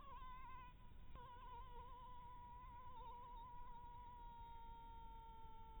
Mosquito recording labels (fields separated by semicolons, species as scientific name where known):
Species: Anopheles harrisoni; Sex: female; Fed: blood-fed; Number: one; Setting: cup